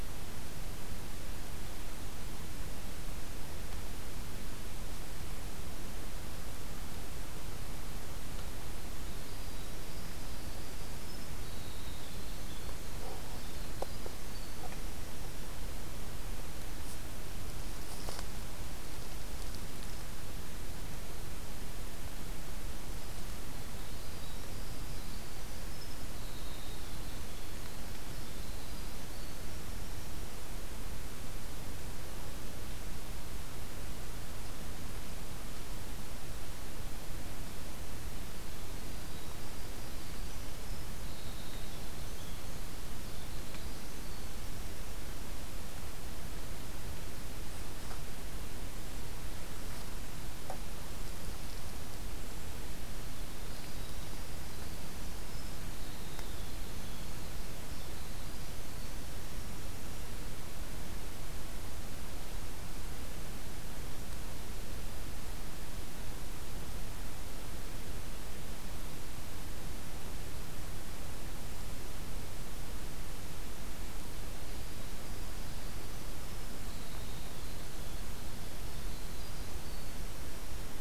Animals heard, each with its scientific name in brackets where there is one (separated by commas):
Winter Wren (Troglodytes hiemalis)